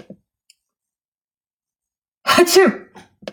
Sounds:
Sneeze